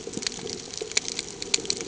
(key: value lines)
label: ambient
recorder: HydroMoth